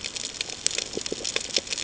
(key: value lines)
label: ambient
recorder: HydroMoth